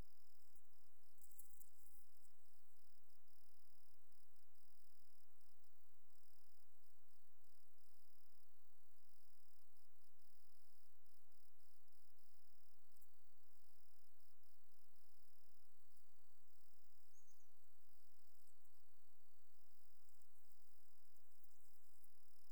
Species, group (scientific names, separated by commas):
Nemobius sylvestris, Orthoptera